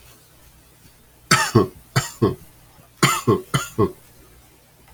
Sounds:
Cough